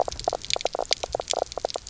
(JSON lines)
{"label": "biophony, knock croak", "recorder": "SoundTrap 300"}